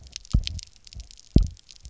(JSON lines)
{"label": "biophony, double pulse", "recorder": "SoundTrap 300"}